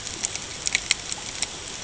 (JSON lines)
{"label": "ambient", "recorder": "HydroMoth"}